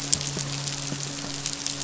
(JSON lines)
{"label": "biophony, midshipman", "recorder": "SoundTrap 500"}